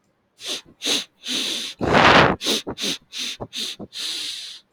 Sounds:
Sneeze